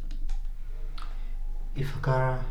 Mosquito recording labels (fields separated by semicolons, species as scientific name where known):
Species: Anopheles arabiensis; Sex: female; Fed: unfed; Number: one; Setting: cup